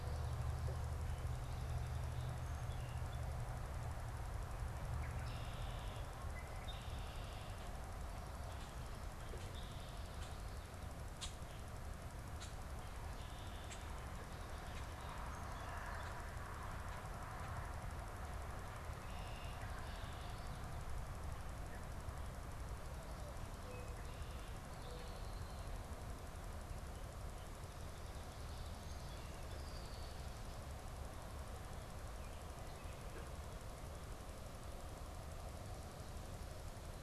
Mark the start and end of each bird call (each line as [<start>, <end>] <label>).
[0.96, 3.36] Song Sparrow (Melospiza melodia)
[4.66, 7.86] Red-winged Blackbird (Agelaius phoeniceus)
[9.26, 10.16] Red-winged Blackbird (Agelaius phoeniceus)
[11.06, 13.96] unidentified bird
[18.56, 20.56] Red-winged Blackbird (Agelaius phoeniceus)
[22.86, 25.46] Mourning Dove (Zenaida macroura)
[24.66, 25.86] Red-winged Blackbird (Agelaius phoeniceus)
[28.16, 30.16] Song Sparrow (Melospiza melodia)
[32.06, 32.96] Baltimore Oriole (Icterus galbula)